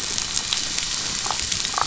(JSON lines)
{"label": "biophony, damselfish", "recorder": "SoundTrap 500"}